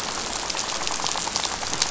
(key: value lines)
label: biophony, rattle
recorder: SoundTrap 500